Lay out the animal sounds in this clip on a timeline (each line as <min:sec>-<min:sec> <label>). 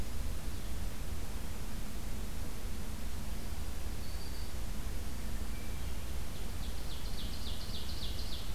0:03.5-0:04.7 Black-throated Green Warbler (Setophaga virens)
0:05.4-0:06.3 Hermit Thrush (Catharus guttatus)
0:06.0-0:08.5 Ovenbird (Seiurus aurocapilla)